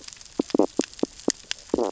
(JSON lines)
{"label": "biophony, stridulation", "recorder": "SoundTrap 600 or HydroMoth"}